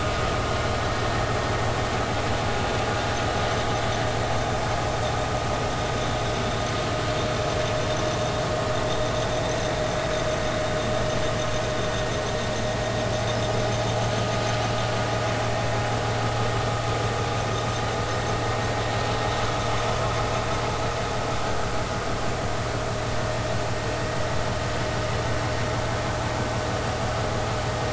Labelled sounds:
9.2	9.4	vessel noise, 5.9 to 6.3 kHz

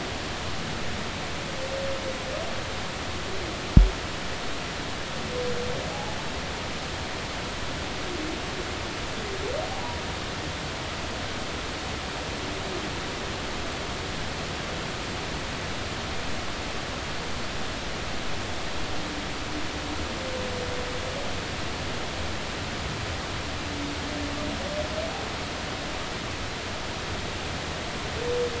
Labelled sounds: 5.9	6.2	humpback whale, 0.80 to 0.90 kHz

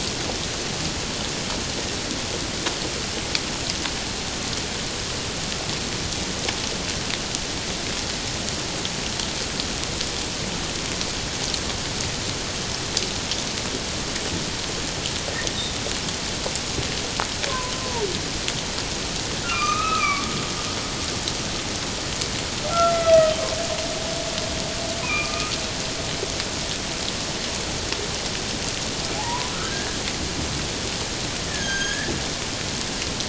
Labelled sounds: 17.5	17.7	humpback whale, 0.94 to 1.1 kHz
19.4	20.2	humpback whale, 1.0 to 2.6 kHz
22.7	23.3	humpback whale, 1.2 to 2.1 kHz
25.0	25.5	humpback whale, 1.2 to 2.6 kHz
29.1	30.0	humpback whale, 0.78 to 1.8 kHz
31.5	32.1	humpback whale, 1.5 to 6.6 kHz

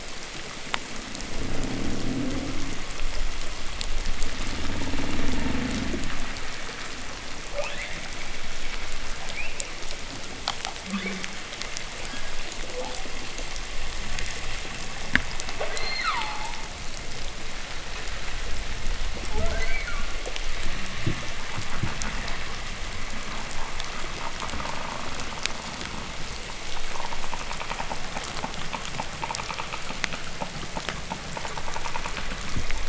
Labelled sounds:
0.8	2.9	humpback whale, growl, 0.02 to 0.82 kHz
4.2	6.2	humpback whale, growl, 0 to 0.99 kHz
7.4	8.1	humpback whale, shriek, 0.28 to 4.2 kHz
9.2	9.7	humpback whale, chirp, 2.1 to 3.0 kHz
10.8	11.4	humpback whale, shriek, 0.10 to 4.1 kHz
12.6	13.2	humpback whale, 0.43 to 0.95 kHz
13.8	15.3	fish, groan and knock, 0.02 to 0.38 kHz
15.5	16.6	humpback whale, 0.34 to 4.4 kHz
19.2	20.1	humpback whale, 0.11 to 4.8 kHz
20.9	22.2	fish, knock, 0.01 to 0.42 kHz
21.3	32.8	humpback whale, creak, 0.04 to 3.1 kHz
32.4	32.7	fish, knock, 0.02 to 0.39 kHz

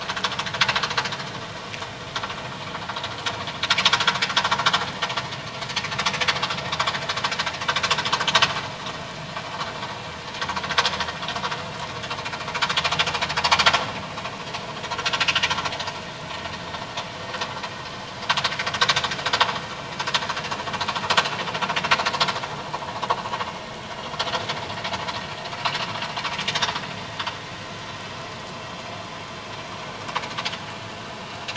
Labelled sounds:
18.8	19.1	vessel noise, 3.5 to 4.1 kHz

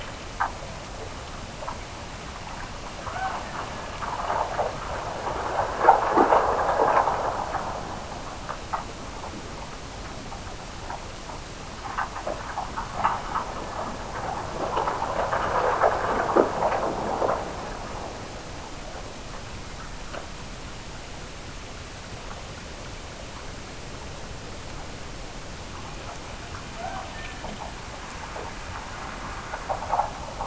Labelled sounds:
2.9	4.1	killer whale, Bigg's (transient), Gulf of Alaska transient, 0.46 to 2.3 kHz
26.7	27.6	killer whale, Bigg's (transient), Gulf of Alaska transient, 0.50 to 2.0 kHz

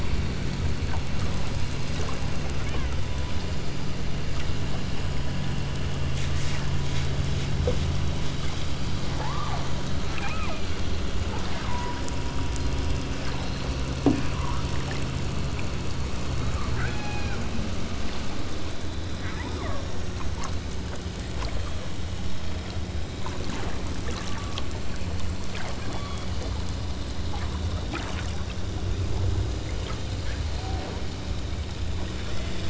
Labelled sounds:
2.6	3.0	killer whale, southern Alaska resident, 0.81 to 3.5 kHz
9.2	9.7	killer whale, southern Alaska resident, 0.39 to 1.5 kHz
10.1	10.6	killer whale, southern Alaska resident, 0.60 to 3.0 kHz
11.7	12.1	killer whale, southern Alaska resident, 0.69 to 1.6 kHz
16.8	17.4	killer whale, southern Alaska resident, 0.56 to 6.3 kHz
19.2	19.9	killer whale, southern Alaska resident, 0.56 to 2.7 kHz
24.2	24.8	killer whale, southern Alaska resident, 0.90 to 1.8 kHz
25.9	26.3	killer whale, southern Alaska resident, 0.86 to 3.7 kHz
29.6	30.1	killer whale, southern Alaska resident, 1.6 to 2.6 kHz
30.6	31.0	killer whale, southern Alaska resident, 0.51 to 1.1 kHz
32.2	32.6	killer whale, southern Alaska resident, 1.2 to 2.7 kHz

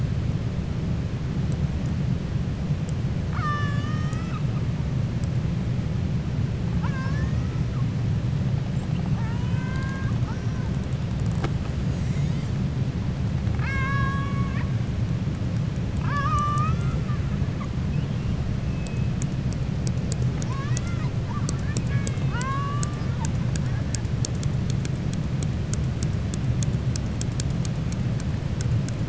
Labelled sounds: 6.7	7.4	killer whale, 0.87 to 6.7 kHz
13.5	14.7	killer whale, 0.91 to 7.1 kHz
15.9	17.0	killer whale, 0.58 to 6.7 kHz
20.3	21.1	killer whale, 0.88 to 4.3 kHz

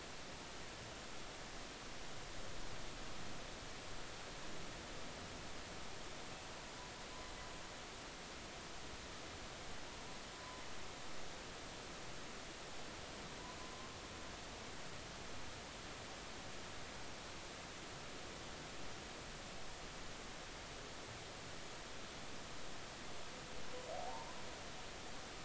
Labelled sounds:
10.3	10.6	humpback whale, 0.96 to 1.1 kHz
24.0	24.4	humpback whale, 0.80 to 1.1 kHz

